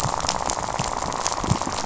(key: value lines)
label: biophony, rattle
recorder: SoundTrap 500